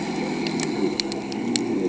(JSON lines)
{"label": "ambient", "recorder": "HydroMoth"}